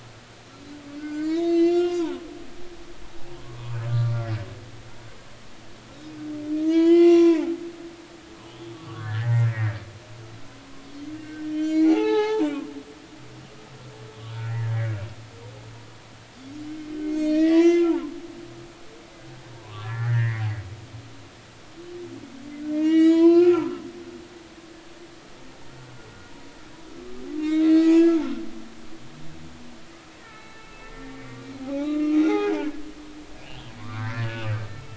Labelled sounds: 1.0	2.2	humpback whale, 0.83 to 7.1 kHz
3.4	4.2	humpback whale, 1.1 to 2.5 kHz
6.6	7.5	humpback whale, 0.80 to 6.0 kHz
8.7	9.8	humpback whale, 1.1 to 2.1 kHz
11.2	12.7	humpback whale, 0.80 to 7.0 kHz
14.3	14.6	humpback whale, 1.3 to 1.5 kHz
17.0	18.0	humpback whale, 0.83 to 7.8 kHz
19.6	20.4	humpback whale, 0.93 to 2.3 kHz
22.7	23.7	humpback whale, 0.93 to 6.9 kHz
27.4	28.2	humpback whale, 1.9 to 3.9 kHz
30.2	32.5	humpback whale, 0.80 to 6.0 kHz
33.4	34.5	humpback whale, 0.93 to 3.6 kHz

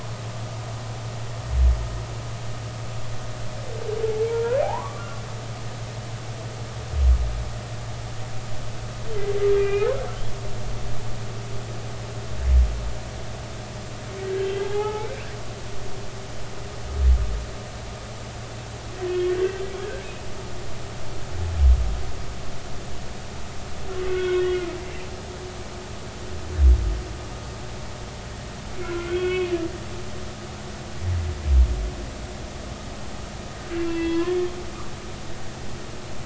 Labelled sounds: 4.3	5.1	humpback whale, 0.80 to 1.8 kHz
9.6	9.9	humpback whale, 1.5 to 2.6 kHz
14.2	15.1	humpback whale, 0.80 to 3.5 kHz
19.1	19.6	humpback whale, 1.5 to 2.9 kHz
24.1	24.5	humpback whale, 1.4 to 3.4 kHz
28.8	29.5	humpback whale, 1.1 to 3.4 kHz
33.8	34.4	humpback whale, 0.96 to 3.4 kHz

